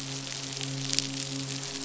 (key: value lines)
label: biophony, midshipman
recorder: SoundTrap 500